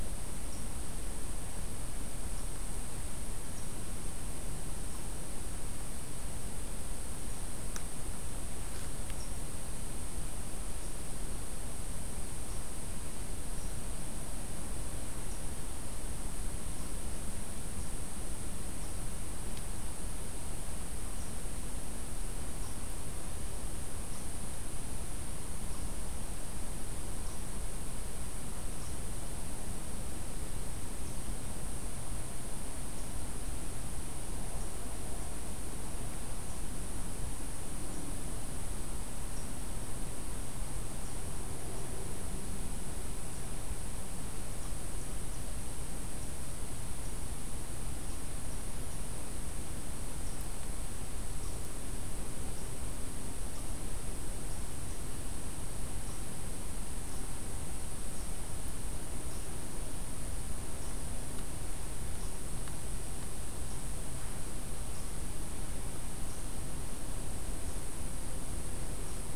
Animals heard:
forest ambience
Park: Acadia National Park